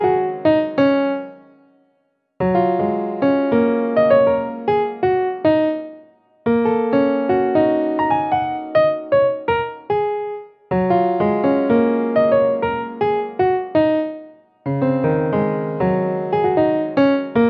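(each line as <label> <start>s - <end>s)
Piano playing. 0.0s - 1.7s
A piano plays a short symphony. 2.2s - 6.3s
A piano is playing music. 6.4s - 17.5s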